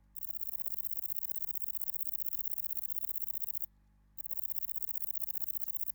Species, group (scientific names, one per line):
Bicolorana bicolor
Orthoptera